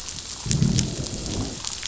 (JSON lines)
{"label": "biophony, growl", "recorder": "SoundTrap 500"}